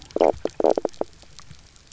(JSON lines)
{"label": "biophony, knock croak", "recorder": "SoundTrap 300"}